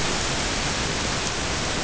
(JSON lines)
{"label": "ambient", "recorder": "HydroMoth"}